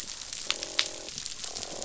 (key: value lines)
label: biophony, croak
recorder: SoundTrap 500